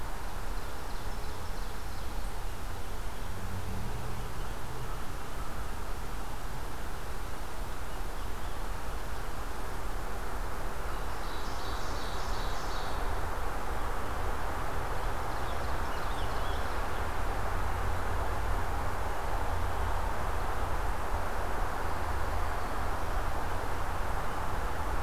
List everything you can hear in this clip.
Ovenbird, Scarlet Tanager